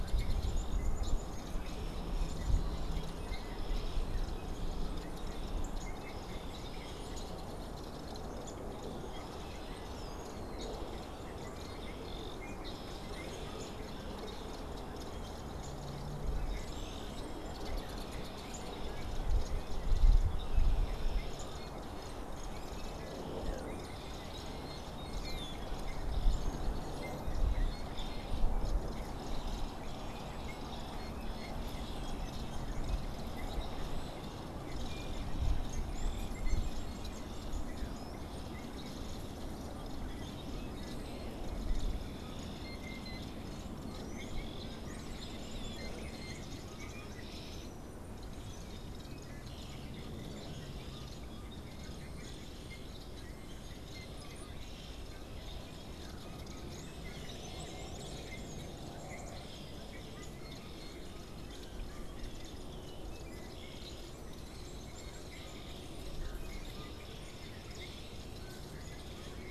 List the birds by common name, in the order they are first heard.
American Robin, unidentified bird, Downy Woodpecker, Blue Jay